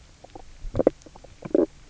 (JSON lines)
{"label": "biophony, knock croak", "recorder": "SoundTrap 300"}